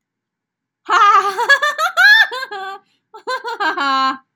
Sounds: Laughter